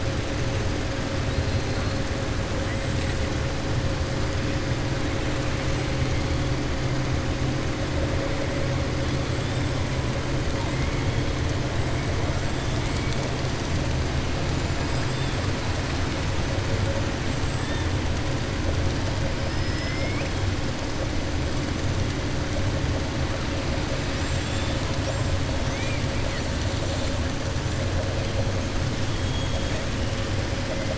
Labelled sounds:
19.7	20.3	killer whale, 1.2 to 2.6 kHz
25.6	26.0	killer whale, 1.9 to 3.4 kHz
29.1	29.8	killer whale, 2.3 to 7.6 kHz

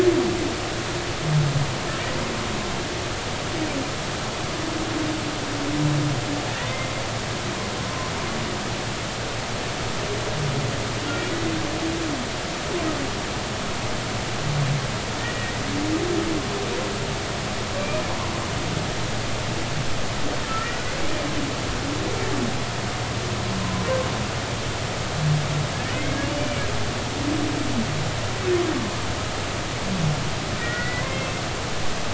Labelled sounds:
15.2	15.5	humpback whale, 1.8 to 2.0 kHz
26.4	26.7	humpback whale, 2.2 to 2.4 kHz
30.6	31.4	humpback whale, 1.3 to 2.7 kHz

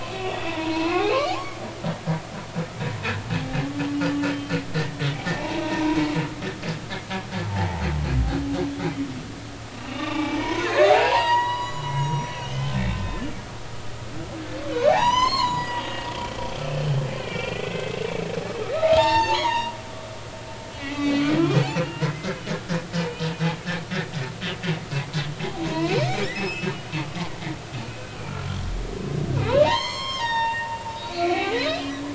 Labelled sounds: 0.1	1.1	humpback whale, 0.86 to 4.2 kHz
5.3	5.6	humpback whale, 0.80 to 0.99 kHz
6.6	7.8	humpback whale, 0.80 to 1.1 kHz
9.9	13.0	humpback whale, 0.80 to 6.9 kHz
14.9	16.1	humpback whale, 0.80 to 7.8 kHz
17.2	18.1	humpback whale, 1.5 to 2.9 kHz
18.7	19.8	humpback whale, 0.80 to 6.7 kHz
20.8	21.2	humpback whale, 1.9 to 6.4 kHz
21.8	22.4	humpback whale, 1.3 to 2.2 kHz
25.4	27.3	humpback whale, 0.80 to 7.8 kHz
29.5	32.1	humpback whale, 0.80 to 8.0 kHz

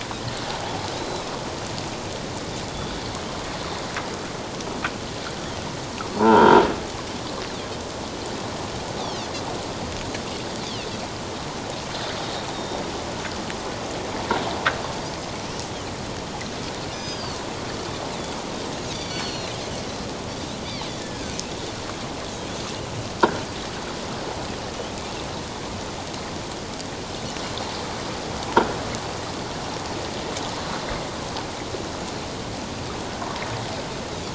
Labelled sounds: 1.0	1.3	Pacific white-sided dolphin, 3.8 to 4.1 kHz
6.1	6.6	croaking sound likely from a nearby submerged object, 0.84 to 1.7 kHz
9.0	9.3	Pacific white-sided dolphin, 2.5 to 4.7 kHz
10.6	10.9	Pacific white-sided dolphin, 2.5 to 4.8 kHz
12.5	12.8	Pacific white-sided dolphin, 3.6 to 3.8 kHz
16.9	17.4	Pacific white-sided dolphin, 3.0 to 6.2 kHz
18.9	19.5	Pacific white-sided dolphin, 2.7 to 6.1 kHz
20.9	21.4	Pacific white-sided dolphin, 1.5 to 2.1 kHz

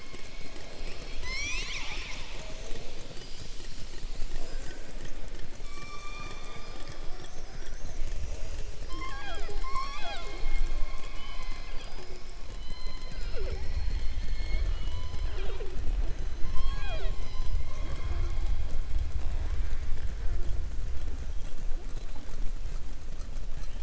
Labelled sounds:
5.6	7.0	killer whale, southern resident, 0.49 to 6.0 kHz

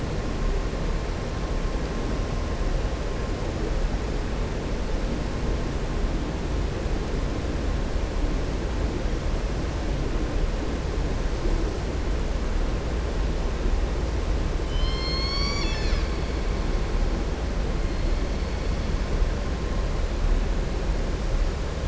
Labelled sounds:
14.6	16.1	killer whale, southern resident, 1.1 to 7.1 kHz

